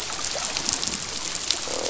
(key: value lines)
label: biophony, croak
recorder: SoundTrap 500